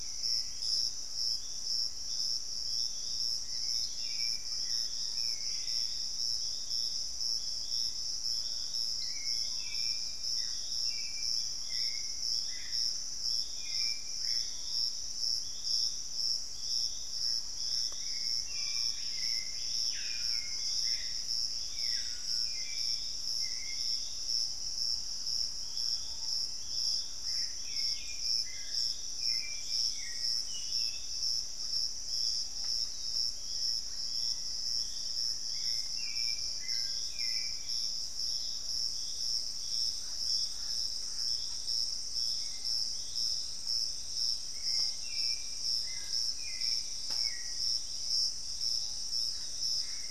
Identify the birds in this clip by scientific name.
Legatus leucophaius, Turdus hauxwelli, Formicarius analis, unidentified bird, Lipaugus vociferans, Campylorhynchus turdinus, Cercomacra cinerascens